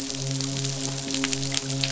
{"label": "biophony, midshipman", "recorder": "SoundTrap 500"}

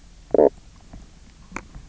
{"label": "biophony, knock croak", "recorder": "SoundTrap 300"}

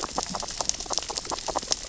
{"label": "biophony, grazing", "recorder": "SoundTrap 600 or HydroMoth"}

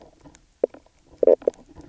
{"label": "biophony, knock croak", "recorder": "SoundTrap 300"}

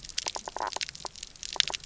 {"label": "biophony, knock croak", "recorder": "SoundTrap 300"}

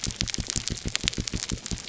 {"label": "biophony", "recorder": "SoundTrap 300"}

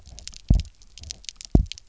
{"label": "biophony, double pulse", "recorder": "SoundTrap 300"}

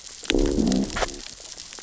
{"label": "biophony, growl", "recorder": "SoundTrap 600 or HydroMoth"}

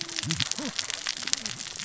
{"label": "biophony, cascading saw", "recorder": "SoundTrap 600 or HydroMoth"}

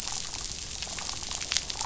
{"label": "biophony, damselfish", "recorder": "SoundTrap 500"}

